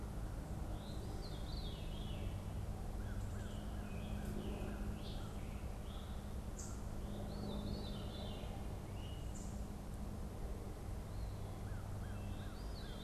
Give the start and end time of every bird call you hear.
0.0s-2.6s: Veery (Catharus fuscescens)
2.8s-7.0s: American Crow (Corvus brachyrhynchos)
3.2s-6.1s: Scarlet Tanager (Piranga olivacea)
3.4s-13.0s: Wood Thrush (Hylocichla mustelina)
6.9s-13.0s: Veery (Catharus fuscescens)

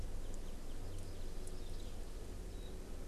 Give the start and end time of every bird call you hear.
2.5s-2.8s: Warbling White-eye (Zosterops japonicus)

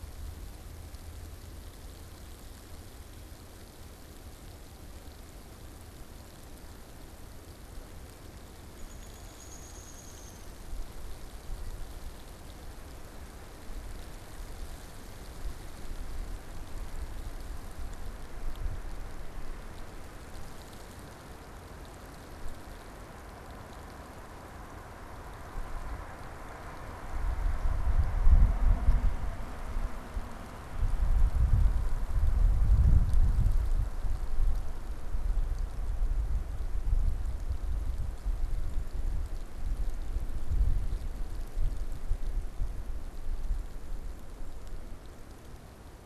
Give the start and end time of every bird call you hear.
8.7s-10.5s: Downy Woodpecker (Dryobates pubescens)

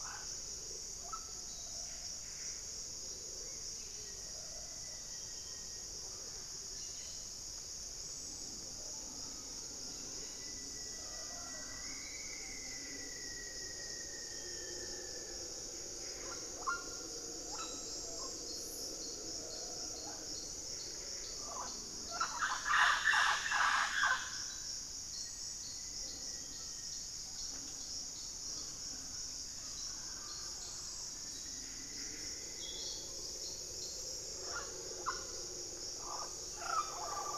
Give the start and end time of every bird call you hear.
0.0s-4.0s: White-rumped Sirystes (Sirystes albocinereus)
0.0s-37.4s: Mealy Parrot (Amazona farinosa)
1.6s-2.7s: Buff-breasted Wren (Cantorchilus leucotis)
3.7s-6.1s: Black-faced Antthrush (Formicarius analis)
10.0s-15.6s: Rufous-fronted Antthrush (Formicarius rufifrons)
14.3s-15.0s: unidentified bird
15.7s-16.7s: Buff-breasted Wren (Cantorchilus leucotis)
20.6s-21.4s: Buff-breasted Wren (Cantorchilus leucotis)
24.9s-27.4s: Black-faced Antthrush (Formicarius analis)
26.2s-27.2s: unidentified bird
30.9s-33.0s: Plumbeous Antbird (Myrmelastes hyperythrus)
31.4s-32.6s: Buff-breasted Wren (Cantorchilus leucotis)

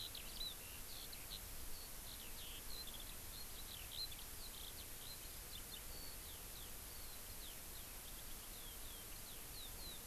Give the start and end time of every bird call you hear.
0.0s-10.1s: Eurasian Skylark (Alauda arvensis)

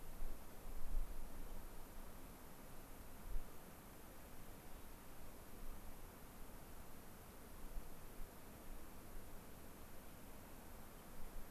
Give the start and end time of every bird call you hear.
1.4s-1.5s: unidentified bird
10.9s-11.0s: unidentified bird

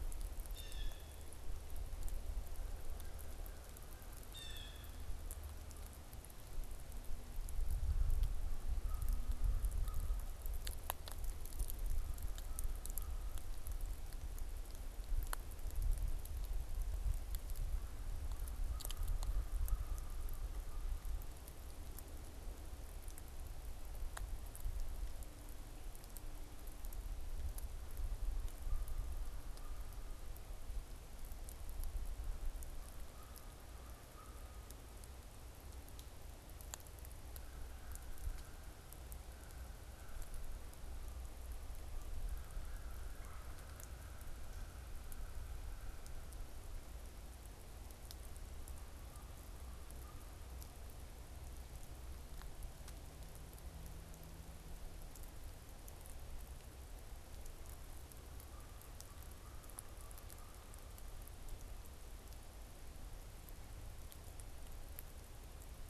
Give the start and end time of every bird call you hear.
0.4s-1.2s: Blue Jay (Cyanocitta cristata)
4.3s-5.0s: Blue Jay (Cyanocitta cristata)
8.5s-10.7s: American Crow (Corvus brachyrhynchos)
11.9s-13.4s: American Crow (Corvus brachyrhynchos)
18.6s-21.0s: American Crow (Corvus brachyrhynchos)
28.5s-30.2s: American Crow (Corvus brachyrhynchos)
32.7s-34.8s: American Crow (Corvus brachyrhynchos)
37.1s-46.4s: American Crow (Corvus brachyrhynchos)
43.1s-43.6s: Red-bellied Woodpecker (Melanerpes carolinus)

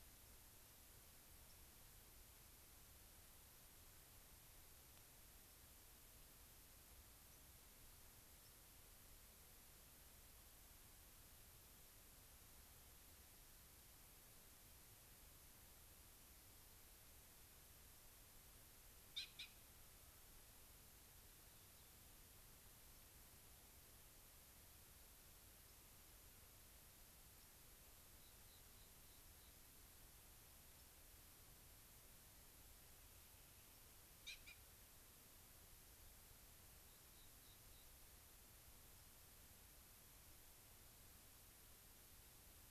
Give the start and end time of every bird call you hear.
1.5s-1.6s: White-crowned Sparrow (Zonotrichia leucophrys)
5.5s-5.6s: White-crowned Sparrow (Zonotrichia leucophrys)
7.3s-7.4s: White-crowned Sparrow (Zonotrichia leucophrys)
8.4s-8.6s: White-crowned Sparrow (Zonotrichia leucophrys)
21.1s-22.1s: Rock Wren (Salpinctes obsoletus)
22.9s-23.1s: White-crowned Sparrow (Zonotrichia leucophrys)
25.6s-25.8s: White-crowned Sparrow (Zonotrichia leucophrys)
27.4s-27.5s: White-crowned Sparrow (Zonotrichia leucophrys)
28.2s-29.7s: Rock Wren (Salpinctes obsoletus)
30.8s-30.9s: White-crowned Sparrow (Zonotrichia leucophrys)
36.8s-38.0s: Rock Wren (Salpinctes obsoletus)

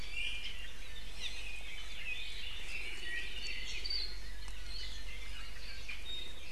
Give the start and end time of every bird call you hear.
0.0s-0.6s: Iiwi (Drepanis coccinea)
1.2s-1.4s: Apapane (Himatione sanguinea)
3.0s-4.3s: Apapane (Himatione sanguinea)
5.6s-6.5s: Iiwi (Drepanis coccinea)

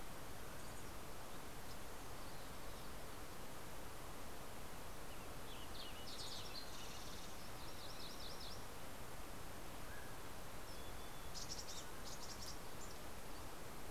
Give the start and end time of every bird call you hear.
1.3s-3.2s: Olive-sided Flycatcher (Contopus cooperi)
4.3s-7.3s: Western Tanager (Piranga ludoviciana)
4.9s-7.8s: Fox Sparrow (Passerella iliaca)
7.4s-8.9s: MacGillivray's Warbler (Geothlypis tolmiei)
8.8s-10.7s: Mountain Quail (Oreortyx pictus)
10.2s-13.8s: Mountain Chickadee (Poecile gambeli)

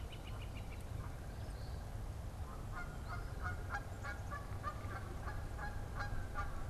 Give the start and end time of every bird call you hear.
0.0s-1.0s: Northern Flicker (Colaptes auratus)
0.0s-6.7s: Eastern Phoebe (Sayornis phoebe)
0.0s-6.7s: Canada Goose (Branta canadensis)

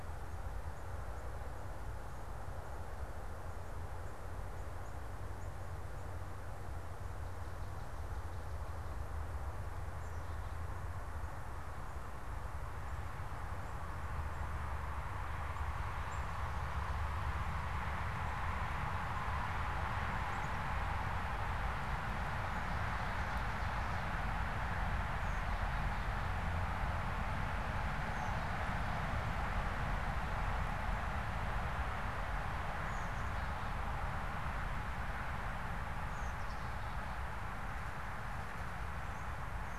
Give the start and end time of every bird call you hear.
16.0s-16.5s: Black-capped Chickadee (Poecile atricapillus)
20.0s-20.7s: Black-capped Chickadee (Poecile atricapillus)
24.9s-39.8s: Black-capped Chickadee (Poecile atricapillus)

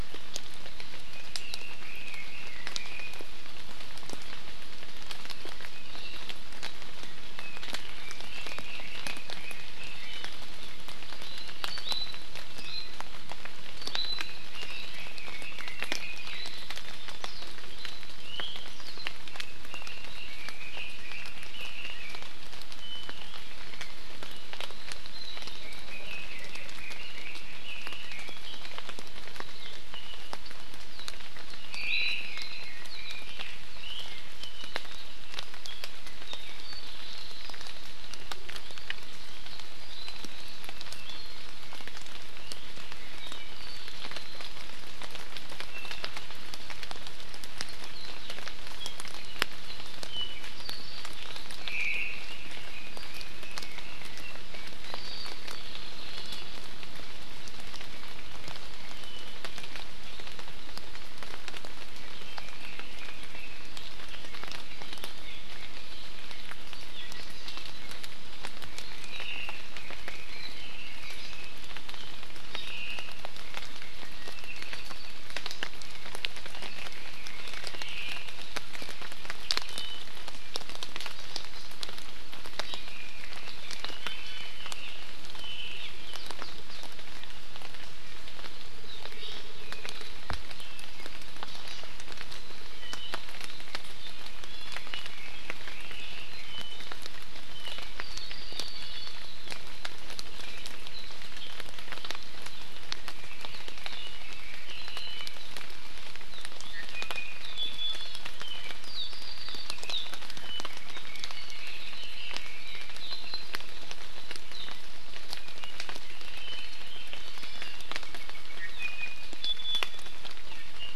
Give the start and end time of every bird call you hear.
1.1s-3.3s: Red-billed Leiothrix (Leiothrix lutea)
7.9s-10.3s: Red-billed Leiothrix (Leiothrix lutea)
11.6s-13.1s: Iiwi (Drepanis coccinea)
13.8s-14.4s: Iiwi (Drepanis coccinea)
14.5s-16.5s: Red-billed Leiothrix (Leiothrix lutea)
18.2s-18.7s: Iiwi (Drepanis coccinea)
19.3s-22.3s: Red-billed Leiothrix (Leiothrix lutea)
25.6s-28.7s: Red-billed Leiothrix (Leiothrix lutea)
31.7s-32.3s: Omao (Myadestes obscurus)
31.8s-32.7s: Iiwi (Drepanis coccinea)
32.3s-33.3s: Red-billed Leiothrix (Leiothrix lutea)
50.1s-51.1s: Apapane (Himatione sanguinea)
51.7s-52.3s: Omao (Myadestes obscurus)
62.2s-63.9s: Red-billed Leiothrix (Leiothrix lutea)
69.0s-69.7s: Omao (Myadestes obscurus)
69.8s-71.6s: Red-billed Leiothrix (Leiothrix lutea)
72.6s-73.2s: Omao (Myadestes obscurus)
74.3s-75.2s: Apapane (Himatione sanguinea)
76.5s-78.0s: Red-billed Leiothrix (Leiothrix lutea)
82.8s-85.1s: Red-billed Leiothrix (Leiothrix lutea)
84.0s-84.6s: Iiwi (Drepanis coccinea)
91.5s-91.9s: Hawaii Amakihi (Chlorodrepanis virens)
92.8s-93.1s: Iiwi (Drepanis coccinea)
94.5s-95.0s: Iiwi (Drepanis coccinea)
95.0s-96.3s: Red-billed Leiothrix (Leiothrix lutea)
98.0s-99.3s: Apapane (Himatione sanguinea)
103.1s-105.1s: Red-billed Leiothrix (Leiothrix lutea)
106.8s-108.3s: Iiwi (Drepanis coccinea)
108.5s-109.8s: Apapane (Himatione sanguinea)
110.8s-113.1s: Red-billed Leiothrix (Leiothrix lutea)
117.3s-117.9s: Hawaii Amakihi (Chlorodrepanis virens)
118.6s-120.2s: Iiwi (Drepanis coccinea)

